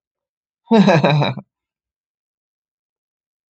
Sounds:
Laughter